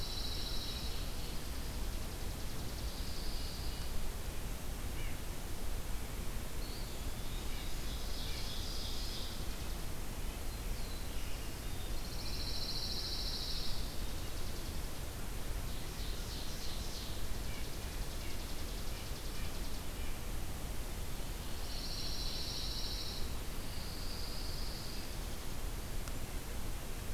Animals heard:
Black-throated Blue Warbler (Setophaga caerulescens), Red-breasted Nuthatch (Sitta canadensis), Ovenbird (Seiurus aurocapilla), Pine Warbler (Setophaga pinus), Chipping Sparrow (Spizella passerina), Eastern Wood-Pewee (Contopus virens)

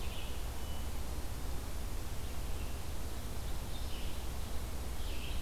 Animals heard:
Red-eyed Vireo (Vireo olivaceus), Hermit Thrush (Catharus guttatus)

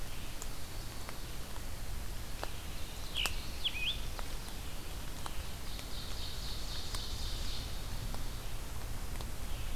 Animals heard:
Black-throated Green Warbler (Setophaga virens), Scarlet Tanager (Piranga olivacea), Ovenbird (Seiurus aurocapilla)

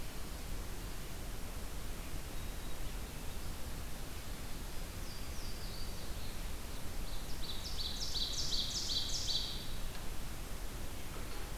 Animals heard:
Ovenbird (Seiurus aurocapilla), Louisiana Waterthrush (Parkesia motacilla), Black-throated Green Warbler (Setophaga virens)

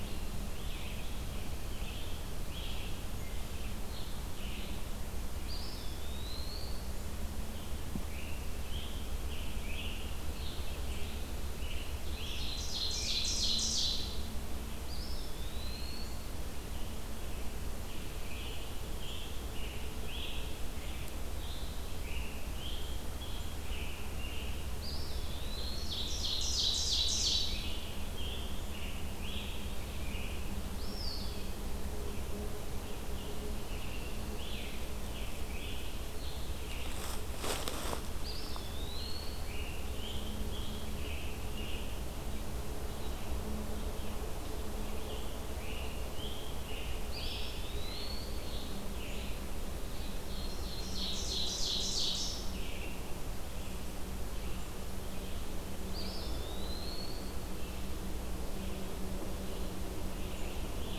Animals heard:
Eastern Wood-Pewee (Contopus virens), Red-eyed Vireo (Vireo olivaceus), Scarlet Tanager (Piranga olivacea), Ovenbird (Seiurus aurocapilla)

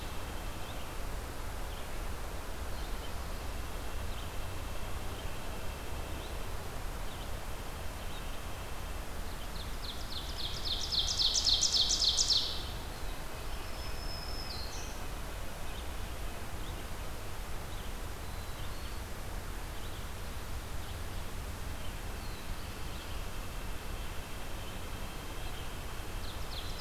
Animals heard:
White-breasted Nuthatch (Sitta carolinensis), Red-eyed Vireo (Vireo olivaceus), Black-throated Green Warbler (Setophaga virens), Black-throated Blue Warbler (Setophaga caerulescens), Ovenbird (Seiurus aurocapilla)

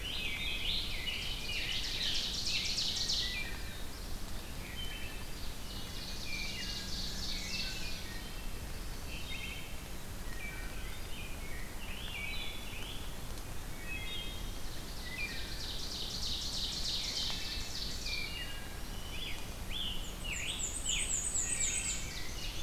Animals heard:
Black-and-white Warbler (Mniotilta varia), Ovenbird (Seiurus aurocapilla), Wood Thrush (Hylocichla mustelina), Black-throated Green Warbler (Setophaga virens), Rose-breasted Grosbeak (Pheucticus ludovicianus), Black-throated Blue Warbler (Setophaga caerulescens), Scarlet Tanager (Piranga olivacea)

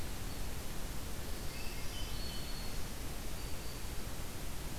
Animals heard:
Hermit Thrush (Catharus guttatus), Black-throated Green Warbler (Setophaga virens)

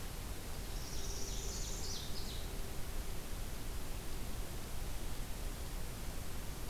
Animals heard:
Northern Parula (Setophaga americana), Ovenbird (Seiurus aurocapilla)

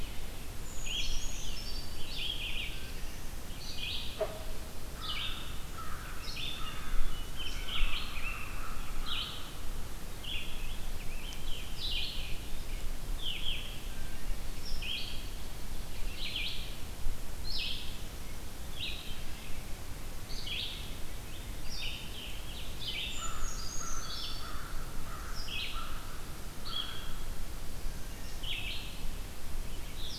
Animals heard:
Black-throated Blue Warbler (Setophaga caerulescens), Red-eyed Vireo (Vireo olivaceus), Wood Thrush (Hylocichla mustelina), Scarlet Tanager (Piranga olivacea), Brown Creeper (Certhia americana), American Crow (Corvus brachyrhynchos)

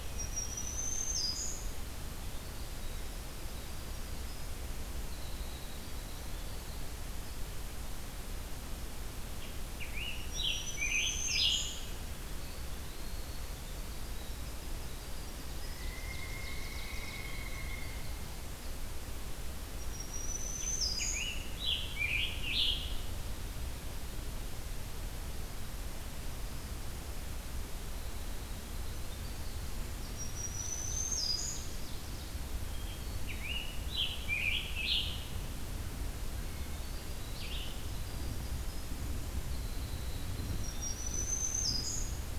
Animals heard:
Black-throated Green Warbler (Setophaga virens), Eastern Wood-Pewee (Contopus virens), Winter Wren (Troglodytes hiemalis), Red-eyed Vireo (Vireo olivaceus), Hermit Thrush (Catharus guttatus), Scarlet Tanager (Piranga olivacea), Ovenbird (Seiurus aurocapilla), Pileated Woodpecker (Dryocopus pileatus)

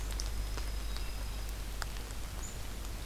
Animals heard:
Dark-eyed Junco (Junco hyemalis)

